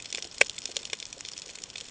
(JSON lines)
{"label": "ambient", "recorder": "HydroMoth"}